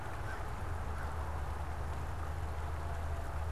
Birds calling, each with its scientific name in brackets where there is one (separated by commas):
American Crow (Corvus brachyrhynchos)